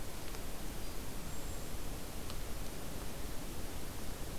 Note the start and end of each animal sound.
1.0s-1.8s: Golden-crowned Kinglet (Regulus satrapa)

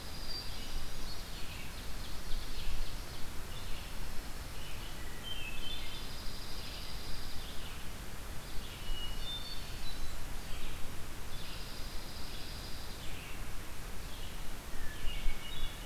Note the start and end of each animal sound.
0.0s-1.5s: Dark-eyed Junco (Junco hyemalis)
0.0s-15.9s: Red-eyed Vireo (Vireo olivaceus)
0.4s-1.8s: Hermit Thrush (Catharus guttatus)
0.9s-3.2s: Ovenbird (Seiurus aurocapilla)
3.4s-5.0s: Dark-eyed Junco (Junco hyemalis)
5.0s-6.2s: Hermit Thrush (Catharus guttatus)
5.6s-7.6s: Dark-eyed Junco (Junco hyemalis)
8.7s-10.0s: Hermit Thrush (Catharus guttatus)
9.4s-10.8s: Blackburnian Warbler (Setophaga fusca)
11.1s-13.0s: Dark-eyed Junco (Junco hyemalis)
14.8s-15.9s: Hermit Thrush (Catharus guttatus)

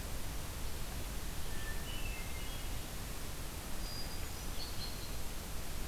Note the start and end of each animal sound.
1.5s-2.9s: Hermit Thrush (Catharus guttatus)
3.6s-4.9s: Hermit Thrush (Catharus guttatus)
4.5s-5.3s: unidentified call

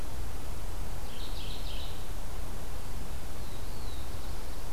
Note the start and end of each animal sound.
0.8s-2.4s: Mourning Warbler (Geothlypis philadelphia)
3.3s-4.7s: Black-throated Blue Warbler (Setophaga caerulescens)

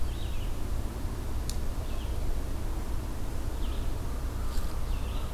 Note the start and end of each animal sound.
0.0s-5.3s: Red-eyed Vireo (Vireo olivaceus)

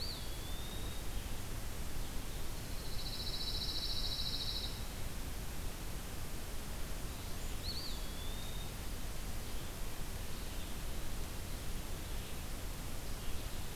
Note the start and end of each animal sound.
0.0s-1.1s: Eastern Wood-Pewee (Contopus virens)
0.0s-13.8s: Red-eyed Vireo (Vireo olivaceus)
2.6s-5.0s: Pine Warbler (Setophaga pinus)
7.6s-8.7s: Eastern Wood-Pewee (Contopus virens)

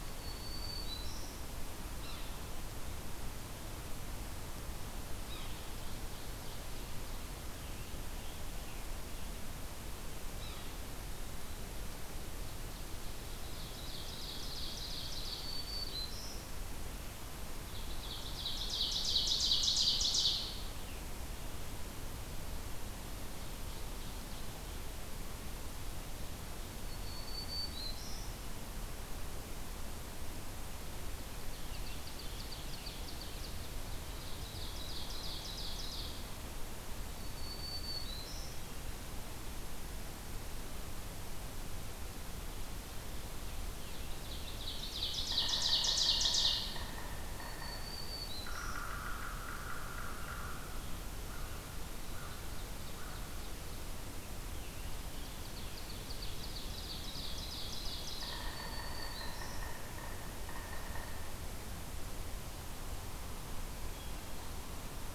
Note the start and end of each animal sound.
0.0s-1.5s: Black-throated Green Warbler (Setophaga virens)
1.9s-2.3s: Yellow-bellied Sapsucker (Sphyrapicus varius)
5.3s-5.5s: Yellow-bellied Sapsucker (Sphyrapicus varius)
5.4s-7.2s: Ovenbird (Seiurus aurocapilla)
7.4s-9.6s: Scarlet Tanager (Piranga olivacea)
10.2s-10.9s: Yellow-bellied Sapsucker (Sphyrapicus varius)
13.4s-15.5s: Ovenbird (Seiurus aurocapilla)
15.2s-16.4s: Black-throated Green Warbler (Setophaga virens)
17.5s-20.7s: Ovenbird (Seiurus aurocapilla)
23.1s-24.7s: Ovenbird (Seiurus aurocapilla)
26.8s-28.4s: Black-throated Green Warbler (Setophaga virens)
31.3s-36.3s: Ovenbird (Seiurus aurocapilla)
37.0s-38.6s: Black-throated Green Warbler (Setophaga virens)
43.2s-45.5s: Scarlet Tanager (Piranga olivacea)
43.8s-46.8s: Ovenbird (Seiurus aurocapilla)
45.2s-50.8s: Yellow-bellied Sapsucker (Sphyrapicus varius)
47.2s-48.8s: Black-throated Green Warbler (Setophaga virens)
51.2s-53.2s: American Crow (Corvus brachyrhynchos)
51.9s-53.7s: Ovenbird (Seiurus aurocapilla)
55.1s-58.5s: Ovenbird (Seiurus aurocapilla)
57.9s-61.1s: Yellow-bellied Sapsucker (Sphyrapicus varius)
58.2s-59.7s: Black-throated Green Warbler (Setophaga virens)

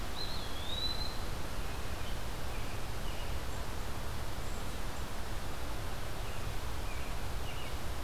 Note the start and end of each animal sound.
0.0s-1.4s: Eastern Wood-Pewee (Contopus virens)
1.7s-3.6s: American Robin (Turdus migratorius)
6.0s-8.0s: American Robin (Turdus migratorius)

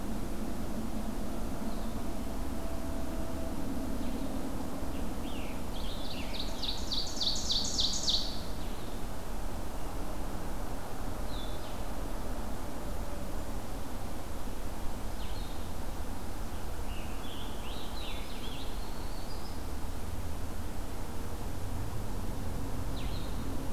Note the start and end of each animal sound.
1.6s-8.9s: Blue-headed Vireo (Vireo solitarius)
4.7s-6.6s: Scarlet Tanager (Piranga olivacea)
6.3s-8.6s: Ovenbird (Seiurus aurocapilla)
11.1s-23.4s: Blue-headed Vireo (Vireo solitarius)
16.6s-18.9s: Scarlet Tanager (Piranga olivacea)
18.4s-19.9s: Prairie Warbler (Setophaga discolor)

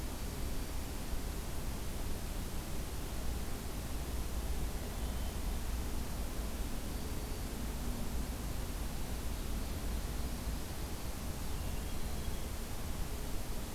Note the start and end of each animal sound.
0.0s-0.8s: Black-throated Green Warbler (Setophaga virens)
4.6s-5.7s: Hermit Thrush (Catharus guttatus)
6.7s-7.6s: Black-throated Green Warbler (Setophaga virens)
11.4s-12.6s: Hermit Thrush (Catharus guttatus)

